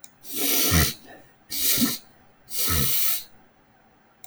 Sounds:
Sniff